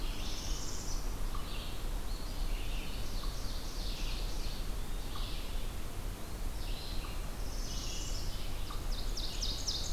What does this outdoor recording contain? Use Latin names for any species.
Setophaga americana, Vireo olivaceus, unknown mammal, Seiurus aurocapilla, Contopus virens